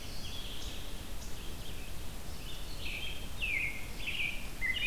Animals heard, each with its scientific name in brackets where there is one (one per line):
American Robin (Turdus migratorius)
Ovenbird (Seiurus aurocapilla)